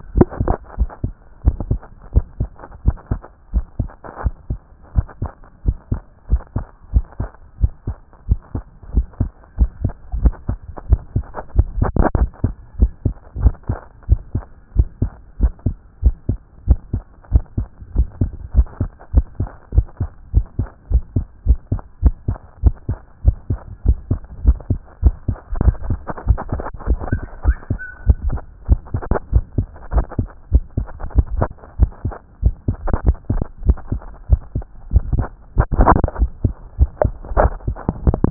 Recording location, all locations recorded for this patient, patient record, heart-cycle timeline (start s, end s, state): tricuspid valve (TV)
aortic valve (AV)+pulmonary valve (PV)+tricuspid valve (TV)+mitral valve (MV)
#Age: Child
#Sex: Female
#Height: 131.0 cm
#Weight: 34.8 kg
#Pregnancy status: False
#Murmur: Absent
#Murmur locations: nan
#Most audible location: nan
#Systolic murmur timing: nan
#Systolic murmur shape: nan
#Systolic murmur grading: nan
#Systolic murmur pitch: nan
#Systolic murmur quality: nan
#Diastolic murmur timing: nan
#Diastolic murmur shape: nan
#Diastolic murmur grading: nan
#Diastolic murmur pitch: nan
#Diastolic murmur quality: nan
#Outcome: Normal
#Campaign: 2014 screening campaign
0.00	0.16	unannotated
0.16	0.28	S1
0.28	0.44	systole
0.44	0.56	S2
0.56	0.78	diastole
0.78	0.90	S1
0.90	1.04	systole
1.04	1.12	S2
1.12	1.44	diastole
1.44	1.56	S1
1.56	1.70	systole
1.70	1.80	S2
1.80	2.14	diastole
2.14	2.26	S1
2.26	2.40	systole
2.40	2.50	S2
2.50	2.84	diastole
2.84	2.96	S1
2.96	3.10	systole
3.10	3.20	S2
3.20	3.54	diastole
3.54	3.64	S1
3.64	3.80	systole
3.80	3.90	S2
3.90	4.24	diastole
4.24	4.34	S1
4.34	4.50	systole
4.50	4.60	S2
4.60	4.94	diastole
4.94	5.06	S1
5.06	5.22	systole
5.22	5.32	S2
5.32	5.66	diastole
5.66	5.76	S1
5.76	5.90	systole
5.90	6.00	S2
6.00	6.30	diastole
6.30	6.42	S1
6.42	6.56	systole
6.56	6.66	S2
6.66	6.94	diastole
6.94	7.04	S1
7.04	7.20	systole
7.20	7.30	S2
7.30	7.60	diastole
7.60	7.72	S1
7.72	7.86	systole
7.86	7.96	S2
7.96	8.28	diastole
8.28	8.40	S1
8.40	8.54	systole
8.54	8.64	S2
8.64	8.94	diastole
8.94	9.06	S1
9.06	9.20	systole
9.20	9.30	S2
9.30	9.58	diastole
9.58	9.70	S1
9.70	9.82	systole
9.82	9.92	S2
9.92	10.20	diastole
10.20	10.34	S1
10.34	10.48	systole
10.48	10.58	S2
10.58	10.88	diastole
10.88	11.00	S1
11.00	11.14	systole
11.14	11.24	S2
11.24	11.56	diastole
11.56	11.68	S1
11.68	11.78	systole
11.78	11.90	S2
11.90	12.16	diastole
12.16	12.30	S1
12.30	12.44	systole
12.44	12.54	S2
12.54	12.80	diastole
12.80	12.90	S1
12.90	13.04	systole
13.04	13.14	S2
13.14	13.40	diastole
13.40	13.54	S1
13.54	13.68	systole
13.68	13.78	S2
13.78	14.08	diastole
14.08	14.20	S1
14.20	14.34	systole
14.34	14.44	S2
14.44	14.76	diastole
14.76	14.88	S1
14.88	15.02	systole
15.02	15.10	S2
15.10	15.40	diastole
15.40	15.52	S1
15.52	15.66	systole
15.66	15.76	S2
15.76	16.04	diastole
16.04	16.14	S1
16.14	16.28	systole
16.28	16.38	S2
16.38	16.68	diastole
16.68	16.78	S1
16.78	16.92	systole
16.92	17.02	S2
17.02	17.32	diastole
17.32	17.44	S1
17.44	17.58	systole
17.58	17.66	S2
17.66	17.96	diastole
17.96	18.08	S1
18.08	18.20	systole
18.20	18.30	S2
18.30	18.56	diastole
18.56	18.66	S1
18.66	18.80	systole
18.80	18.90	S2
18.90	19.14	diastole
19.14	19.26	S1
19.26	19.40	systole
19.40	19.48	S2
19.48	19.74	diastole
19.74	19.86	S1
19.86	20.00	systole
20.00	20.10	S2
20.10	20.34	diastole
20.34	20.46	S1
20.46	20.58	systole
20.58	20.68	S2
20.68	20.90	diastole
20.90	21.04	S1
21.04	21.16	systole
21.16	21.26	S2
21.26	21.46	diastole
21.46	21.58	S1
21.58	21.72	systole
21.72	21.82	S2
21.82	22.02	diastole
22.02	22.14	S1
22.14	22.28	systole
22.28	22.38	S2
22.38	22.62	diastole
22.62	22.74	S1
22.74	22.88	systole
22.88	22.98	S2
22.98	23.24	diastole
23.24	23.36	S1
23.36	23.50	systole
23.50	23.58	S2
23.58	23.86	diastole
23.86	23.98	S1
23.98	24.10	systole
24.10	24.20	S2
24.20	24.44	diastole
24.44	24.58	S1
24.58	24.70	systole
24.70	24.80	S2
24.80	25.02	diastole
25.02	25.14	S1
25.14	25.28	systole
25.28	25.36	S2
25.36	25.62	diastole
25.62	25.76	S1
25.76	25.88	systole
25.88	25.98	S2
25.98	26.26	diastole
26.26	26.38	S1
26.38	26.52	systole
26.52	26.62	S2
26.62	26.88	diastole
26.88	27.00	S1
27.00	27.12	systole
27.12	27.22	S2
27.22	27.46	diastole
27.46	27.56	S1
27.56	27.70	systole
27.70	27.80	S2
27.80	28.06	diastole
28.06	28.18	S1
28.18	28.30	systole
28.30	28.40	S2
28.40	28.68	diastole
28.68	28.80	S1
28.80	28.94	systole
28.94	29.02	S2
29.02	29.32	diastole
29.32	29.44	S1
29.44	29.58	systole
29.58	29.66	S2
29.66	29.94	diastole
29.94	30.06	S1
30.06	30.18	systole
30.18	30.28	S2
30.28	30.52	diastole
30.52	30.64	S1
30.64	30.78	systole
30.78	30.88	S2
30.88	31.16	diastole
31.16	31.26	S1
31.26	31.38	systole
31.38	31.48	S2
31.48	31.78	diastole
31.78	31.90	S1
31.90	32.04	systole
32.04	32.14	S2
32.14	32.42	diastole
32.42	32.54	S1
32.54	32.68	systole
32.68	32.76	S2
32.76	33.06	diastole
33.06	33.16	S1
33.16	33.32	systole
33.32	33.42	S2
33.42	33.66	diastole
33.66	33.78	S1
33.78	33.90	systole
33.90	34.02	S2
34.02	34.30	diastole
34.30	34.40	S1
34.40	34.54	systole
34.54	34.64	S2
34.64	34.92	diastole
34.92	35.04	S1
35.04	35.16	systole
35.16	35.26	S2
35.26	35.56	diastole
35.56	38.30	unannotated